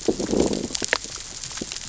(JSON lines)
{"label": "biophony, growl", "recorder": "SoundTrap 600 or HydroMoth"}